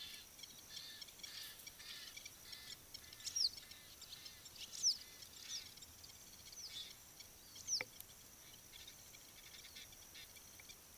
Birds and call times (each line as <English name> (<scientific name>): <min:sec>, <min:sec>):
Egyptian Goose (Alopochen aegyptiaca): 0:01.4, 0:09.8
Western Yellow Wagtail (Motacilla flava): 0:03.4
Blacksmith Lapwing (Vanellus armatus): 0:09.4